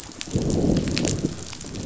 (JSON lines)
{"label": "biophony, growl", "recorder": "SoundTrap 500"}